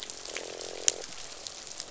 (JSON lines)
{"label": "biophony, croak", "recorder": "SoundTrap 500"}